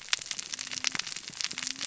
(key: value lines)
label: biophony, cascading saw
recorder: SoundTrap 600 or HydroMoth